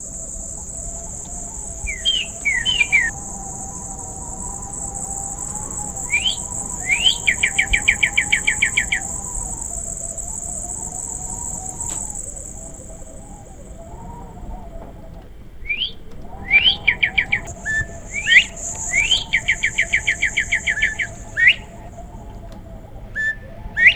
Is a bird chirping?
yes